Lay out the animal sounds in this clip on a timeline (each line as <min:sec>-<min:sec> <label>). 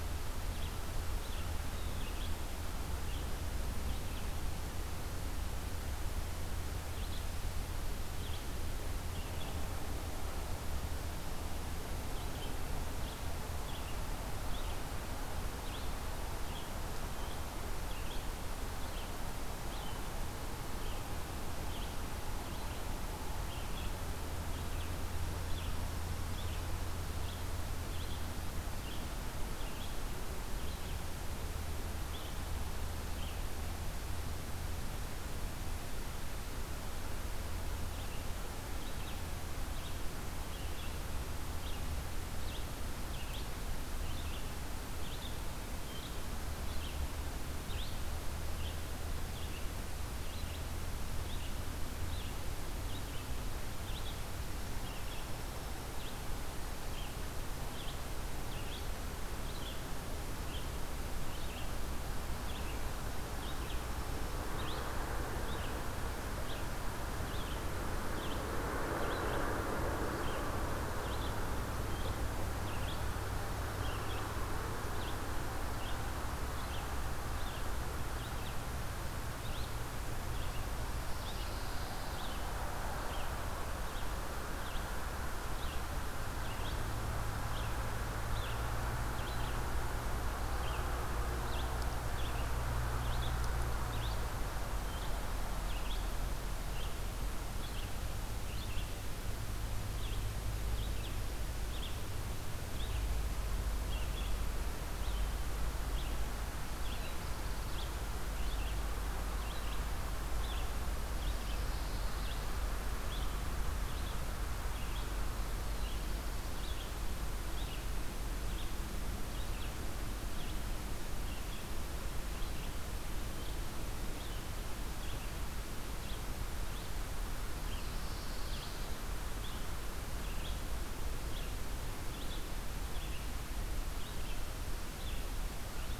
0:00.0-0:09.6 Red-eyed Vireo (Vireo olivaceus)
0:11.9-1:09.4 Red-eyed Vireo (Vireo olivaceus)
0:54.6-0:56.0 Dark-eyed Junco (Junco hyemalis)
1:02.8-1:04.6 Dark-eyed Junco (Junco hyemalis)
1:10.0-2:07.9 Red-eyed Vireo (Vireo olivaceus)
1:20.7-1:22.4 Pine Warbler (Setophaga pinus)
1:46.6-1:48.0 Black-throated Blue Warbler (Setophaga caerulescens)
1:51.1-1:52.5 Pine Warbler (Setophaga pinus)
1:55.3-1:56.9 Black-throated Blue Warbler (Setophaga caerulescens)
2:07.7-2:09.1 Pine Warbler (Setophaga pinus)
2:08.3-2:16.0 Red-eyed Vireo (Vireo olivaceus)